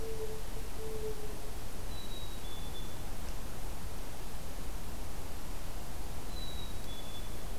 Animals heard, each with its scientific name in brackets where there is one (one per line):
Mourning Dove (Zenaida macroura)
Black-capped Chickadee (Poecile atricapillus)